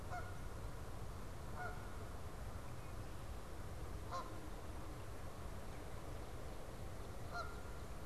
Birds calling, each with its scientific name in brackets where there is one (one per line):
Red-winged Blackbird (Agelaius phoeniceus)
Canada Goose (Branta canadensis)